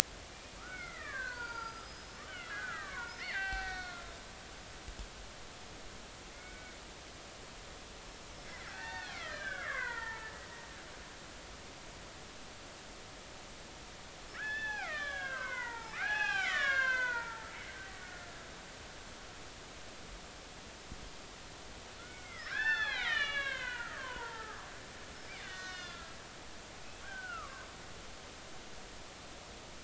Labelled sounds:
0.3	4.1	killer whale, Bigg's (transient), 0.80 to 5.5 kHz
6.3	6.8	killer whale, Bigg's (transient), 1.4 to 2.3 kHz
8.3	10.3	killer whale, Bigg's (transient), 0.80 to 5.4 kHz
14.3	17.8	killer whale, Bigg's (transient), 0.80 to 7.4 kHz
22.0	26.2	killer whale, Bigg's (transient), 0.80 to 5.6 kHz
27.0	27.6	killer whale, Bigg's (transient), 1.0 to 1.7 kHz

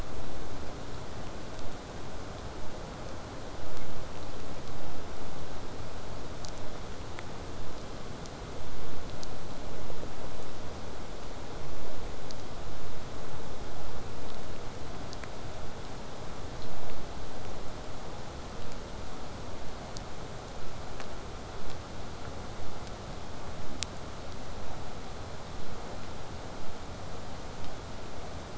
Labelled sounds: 27.6	28.5	vessel noise, 0.05 to 8.0 kHz

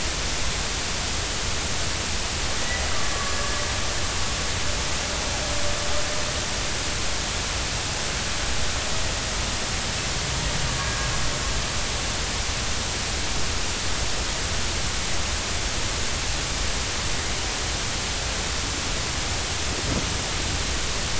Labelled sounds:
2.6	2.8	killer whale, Bigg's (transient), 1.9 to 2.0 kHz

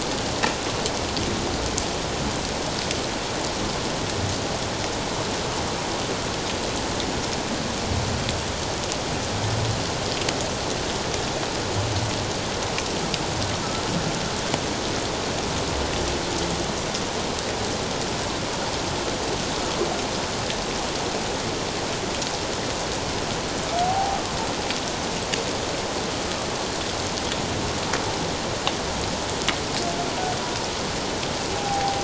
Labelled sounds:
23.8	24.2	humpback whale, 0.78 to 0.91 kHz
31.5	32.0	humpback whale, 0.78 to 0.88 kHz

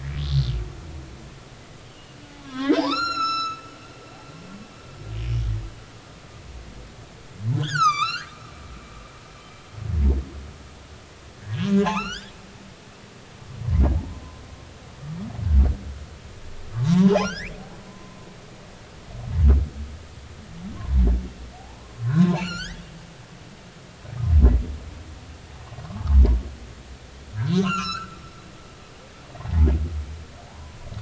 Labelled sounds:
1.9	4.0	humpback whale, 0.80 to 8.0 kHz
7.6	8.3	humpback whale, 1.1 to 8.0 kHz
11.4	12.3	humpback whale, 0.80 to 6.5 kHz
16.9	18.2	humpback whale, 0.80 to 6.0 kHz
21.6	22.8	humpback whale, 0.80 to 6.9 kHz
27.4	28.2	humpback whale, 0.99 to 5.7 kHz
29.3	29.7	humpback whale, 1.8 to 2.1 kHz
30.5	30.8	humpback whale, 0.80 to 1.1 kHz

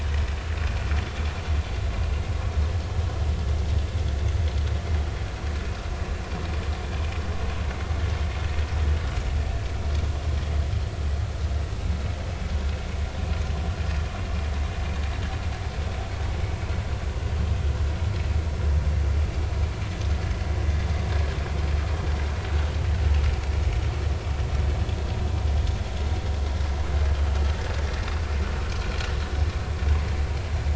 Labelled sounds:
1.0	1.3	vessel noise, 3.3 to 3.5 kHz

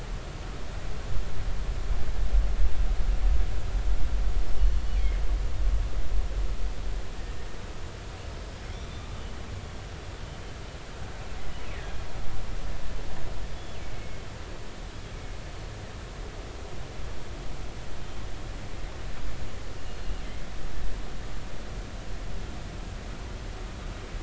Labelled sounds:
4.8	5.1	killer whale, northern resident, G clan, GG subclan, call N23ii, 4.3 to 4.5 kHz
8.7	9.1	killer whale, northern resident, G clan, GI subclan, call N23i, 3.4 to 3.6 kHz
11.8	12.0	killer whale, northern resident, G clan, GI subclan, 1.6 to 2.0 kHz
13.9	14.2	killer whale, northern resident, G clan, GG subclan, call N23ii, 2.1 to 2.2 kHz
19.8	20.5	killer whale, northern resident, G clan, GG subclan, call N23ii, 2.0 to 4.3 kHz

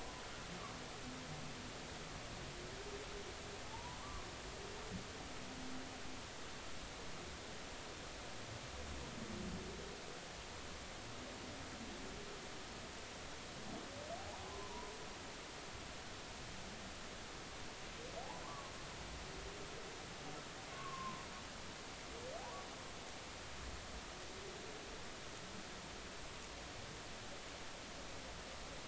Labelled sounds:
3.6	4.3	humpback whale, 0.80 to 1.2 kHz
14.5	14.9	humpback whale, 0.90 to 1.1 kHz
18.4	18.7	humpback whale, 0.96 to 1.2 kHz
20.7	21.2	humpback whale, 0.96 to 1.3 kHz

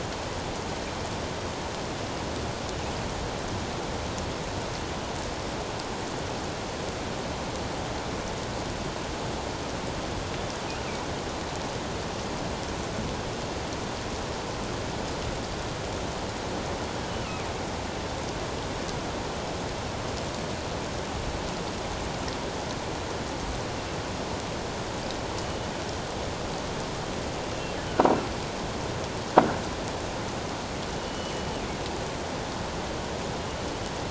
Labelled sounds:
17.1	17.4	killer whale, northern resident, G clan, 2.5 to 3.0 kHz
31.0	31.5	killer whale, northern resident, G clan, 2.9 to 3.0 kHz

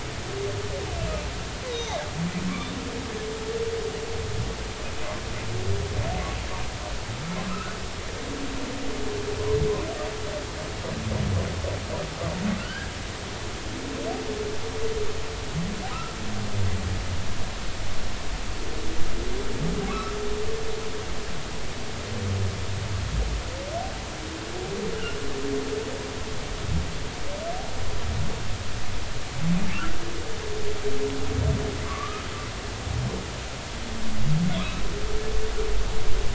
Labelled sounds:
1.0	1.3	humpback whale, 2.3 to 2.8 kHz
1.7	2.0	humpback whale, 3.5 to 3.9 kHz
7.5	7.8	humpback whale, 1.2 to 1.5 kHz
12.6	12.9	humpback whale, 1.3 to 1.7 kHz
13.6	13.8	humpback whale, 2.6 to 3.2 kHz
15.9	16.2	humpback whale, 1.2 to 1.4 kHz
19.9	20.1	humpback whale, 1.1 to 1.4 kHz
31.8	32.2	humpback whale, 0.99 to 1.3 kHz

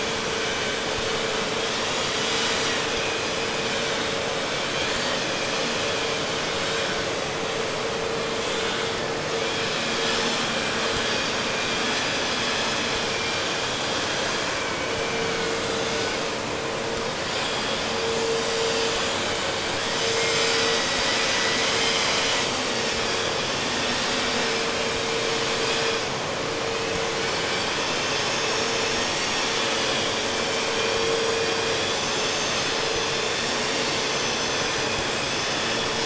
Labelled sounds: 0.0	7.1	vessel noise, 0.94 to 5.4 kHz
9.3	16.3	vessel noise, 1.0 to 5.7 kHz
19.8	22.5	vessel noise, 0.81 to 7.8 kHz
27.2	36.0	vessel noise, 0.97 to 7.2 kHz

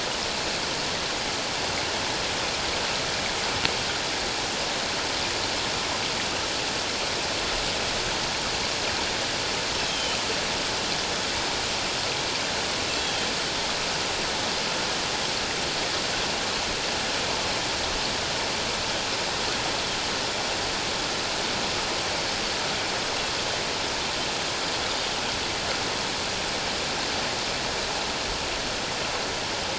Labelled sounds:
9.9	10.2	Pacific white-sided dolphin, 2.9 to 3.4 kHz
12.9	13.3	Pacific white-sided dolphin, 3.1 to 7.4 kHz

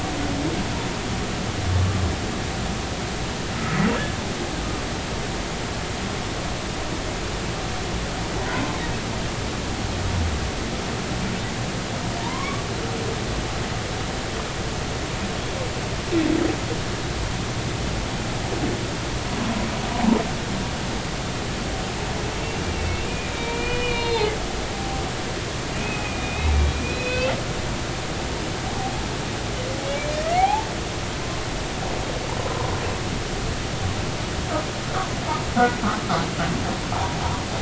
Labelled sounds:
12.2	12.6	humpback whale, 0.86 to 1.2 kHz
22.4	25.0	humpback whale, 0.80 to 4.4 kHz
25.8	27.3	humpback whale, 2.4 to 4.1 kHz
30.1	30.7	humpback whale, 0.80 to 2.6 kHz
32.4	32.7	humpback whale, 0.90 to 1.1 kHz

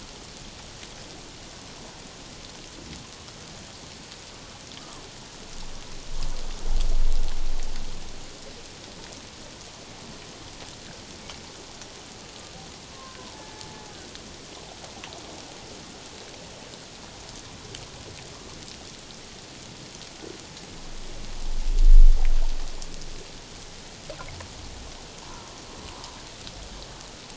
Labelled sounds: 12.9	13.7	humpback whale, 0.81 to 1.8 kHz

